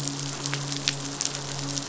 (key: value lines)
label: biophony, midshipman
recorder: SoundTrap 500